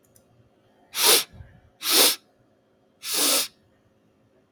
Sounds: Sniff